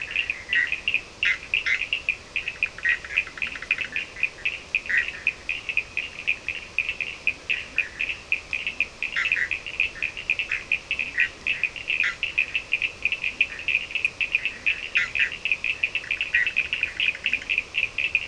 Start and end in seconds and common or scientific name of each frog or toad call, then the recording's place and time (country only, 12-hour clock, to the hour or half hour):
0.0	5.4	Bischoff's tree frog
0.0	18.2	Cochran's lime tree frog
3.2	4.4	Leptodactylus latrans
9.0	12.3	Bischoff's tree frog
10.7	11.3	Leptodactylus latrans
14.3	15.0	Leptodactylus latrans
14.8	17.6	Bischoff's tree frog
17.0	18.2	Leptodactylus latrans
Brazil, 4:30am